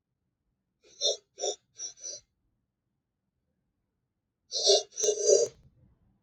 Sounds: Sniff